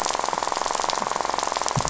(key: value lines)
label: biophony, rattle
recorder: SoundTrap 500